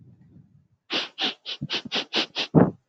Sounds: Sniff